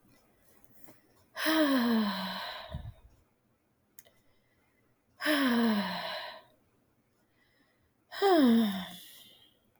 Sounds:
Sigh